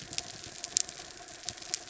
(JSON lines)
{"label": "anthrophony, mechanical", "recorder": "SoundTrap 300"}